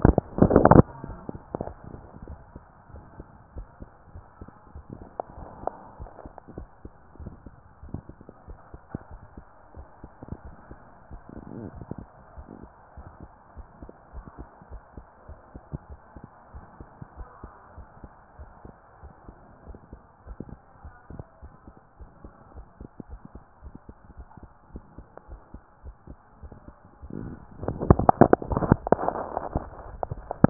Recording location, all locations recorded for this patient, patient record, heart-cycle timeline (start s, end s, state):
tricuspid valve (TV)
aortic valve (AV)+pulmonary valve (PV)+tricuspid valve (TV)
#Age: nan
#Sex: Female
#Height: nan
#Weight: nan
#Pregnancy status: True
#Murmur: Absent
#Murmur locations: nan
#Most audible location: nan
#Systolic murmur timing: nan
#Systolic murmur shape: nan
#Systolic murmur grading: nan
#Systolic murmur pitch: nan
#Systolic murmur quality: nan
#Diastolic murmur timing: nan
#Diastolic murmur shape: nan
#Diastolic murmur grading: nan
#Diastolic murmur pitch: nan
#Diastolic murmur quality: nan
#Outcome: Normal
#Campaign: 2015 screening campaign
0.00	2.90	unannotated
2.90	3.04	S1
3.04	3.14	systole
3.14	3.28	S2
3.28	3.54	diastole
3.54	3.68	S1
3.68	3.78	systole
3.78	3.88	S2
3.88	4.14	diastole
4.14	4.26	S1
4.26	4.40	systole
4.40	4.48	S2
4.48	4.74	diastole
4.74	4.86	S1
4.86	4.98	systole
4.98	5.08	S2
5.08	5.36	diastole
5.36	5.50	S1
5.50	5.60	systole
5.60	5.72	S2
5.72	5.98	diastole
5.98	6.10	S1
6.10	6.24	systole
6.24	6.32	S2
6.32	6.56	diastole
6.56	6.68	S1
6.68	6.80	systole
6.80	6.90	S2
6.90	7.18	diastole
7.18	7.34	S1
7.34	7.44	systole
7.44	7.54	S2
7.54	7.82	diastole
7.82	8.00	S1
8.00	8.08	systole
8.08	8.16	S2
8.16	8.46	diastole
8.46	8.58	S1
8.58	8.70	systole
8.70	8.80	S2
8.80	9.10	diastole
9.10	9.22	S1
9.22	9.36	systole
9.36	9.44	S2
9.44	9.76	diastole
9.76	9.86	S1
9.86	10.00	systole
10.00	10.10	S2
10.10	10.44	diastole
10.44	10.58	S1
10.58	10.70	systole
10.70	10.78	S2
10.78	11.12	diastole
11.12	11.22	S1
11.22	11.38	systole
11.38	11.48	S2
11.48	11.74	diastole
11.74	11.88	S1
11.88	11.98	systole
11.98	12.08	S2
12.08	12.36	diastole
12.36	12.48	S1
12.48	12.62	systole
12.62	12.70	S2
12.70	12.98	diastole
12.98	13.12	S1
13.12	13.22	systole
13.22	13.30	S2
13.30	13.56	diastole
13.56	13.68	S1
13.68	13.80	systole
13.80	13.90	S2
13.90	14.14	diastole
14.14	14.26	S1
14.26	14.36	systole
14.36	14.46	S2
14.46	14.70	diastole
14.70	14.82	S1
14.82	14.98	systole
14.98	15.06	S2
15.06	15.30	diastole
15.30	15.38	S1
15.38	15.52	systole
15.52	15.62	S2
15.62	15.90	diastole
15.90	16.00	S1
16.00	16.12	systole
16.12	16.22	S2
16.22	16.54	diastole
16.54	16.68	S1
16.68	16.78	systole
16.78	16.88	S2
16.88	17.16	diastole
17.16	17.28	S1
17.28	17.40	systole
17.40	17.50	S2
17.50	17.76	diastole
17.76	17.88	S1
17.88	18.02	systole
18.02	18.10	S2
18.10	18.40	diastole
18.40	18.52	S1
18.52	18.64	systole
18.64	18.74	S2
18.74	19.04	diastole
19.04	19.12	S1
19.12	19.24	systole
19.24	19.36	S2
19.36	19.66	diastole
19.66	19.80	S1
19.80	19.90	systole
19.90	20.00	S2
20.00	20.26	diastole
20.26	20.38	S1
20.38	20.48	systole
20.48	20.58	S2
20.58	20.84	diastole
20.84	20.94	S1
20.94	30.50	unannotated